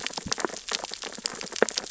{"label": "biophony, sea urchins (Echinidae)", "recorder": "SoundTrap 600 or HydroMoth"}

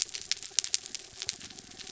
{"label": "biophony", "recorder": "SoundTrap 300"}
{"label": "anthrophony, mechanical", "recorder": "SoundTrap 300"}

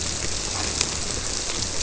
{"label": "biophony", "recorder": "SoundTrap 300"}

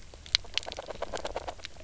{"label": "biophony, knock croak", "recorder": "SoundTrap 300"}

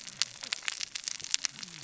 {"label": "biophony, cascading saw", "recorder": "SoundTrap 600 or HydroMoth"}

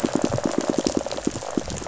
{"label": "biophony, pulse", "recorder": "SoundTrap 500"}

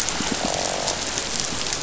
{"label": "biophony", "recorder": "SoundTrap 500"}
{"label": "biophony, croak", "recorder": "SoundTrap 500"}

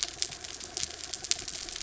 {"label": "anthrophony, mechanical", "recorder": "SoundTrap 300"}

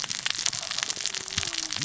{"label": "biophony, cascading saw", "recorder": "SoundTrap 600 or HydroMoth"}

